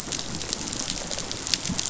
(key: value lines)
label: biophony, rattle response
recorder: SoundTrap 500